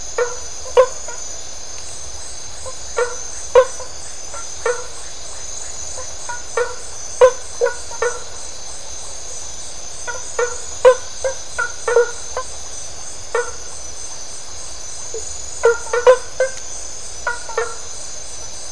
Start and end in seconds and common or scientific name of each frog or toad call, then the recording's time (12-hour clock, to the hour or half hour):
0.0	17.9	blacksmith tree frog
~midnight